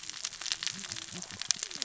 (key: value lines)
label: biophony, cascading saw
recorder: SoundTrap 600 or HydroMoth